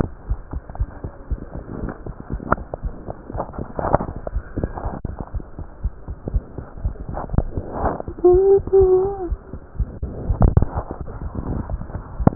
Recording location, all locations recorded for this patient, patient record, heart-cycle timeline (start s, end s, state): aortic valve (AV)
aortic valve (AV)+pulmonary valve (PV)+tricuspid valve (TV)+mitral valve (MV)
#Age: Child
#Sex: Male
#Height: 108.0 cm
#Weight: 19.0 kg
#Pregnancy status: False
#Murmur: Absent
#Murmur locations: nan
#Most audible location: nan
#Systolic murmur timing: nan
#Systolic murmur shape: nan
#Systolic murmur grading: nan
#Systolic murmur pitch: nan
#Systolic murmur quality: nan
#Diastolic murmur timing: nan
#Diastolic murmur shape: nan
#Diastolic murmur grading: nan
#Diastolic murmur pitch: nan
#Diastolic murmur quality: nan
#Outcome: Abnormal
#Campaign: 2015 screening campaign
0.00	0.27	unannotated
0.27	0.40	S1
0.40	0.52	systole
0.52	0.60	S2
0.60	0.76	diastole
0.76	0.90	S1
0.90	1.00	systole
1.00	1.10	S2
1.10	1.28	diastole
1.28	1.40	S1
1.40	1.50	systole
1.50	1.62	S2
1.62	1.80	diastole
1.80	1.90	S1
1.90	2.04	systole
2.04	2.14	S2
2.14	2.30	diastole
2.30	2.42	S1
2.42	2.50	systole
2.50	2.60	S2
2.60	2.80	diastole
2.80	2.94	S1
2.94	3.04	systole
3.04	3.14	S2
3.14	3.33	diastole
3.33	3.46	S1
3.46	3.56	systole
3.56	3.66	S2
3.66	4.31	unannotated
4.31	4.48	S1
4.48	4.58	systole
4.58	4.68	S2
4.68	4.84	diastole
4.84	4.94	S1
4.94	5.02	systole
5.02	5.14	S2
5.14	5.32	diastole
5.32	5.44	S1
5.44	5.56	systole
5.56	5.66	S2
5.66	5.82	diastole
5.82	5.94	S1
5.94	6.06	systole
6.06	6.16	S2
6.16	6.32	diastole
6.32	6.46	S1
6.46	6.56	systole
6.56	6.64	S2
6.64	6.82	diastole
6.82	6.96	S1
6.96	7.06	systole
7.06	7.14	S2
7.14	12.35	unannotated